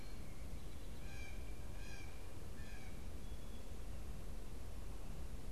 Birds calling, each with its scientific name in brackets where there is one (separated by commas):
Blue Jay (Cyanocitta cristata)